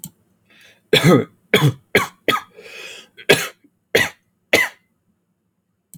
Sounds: Cough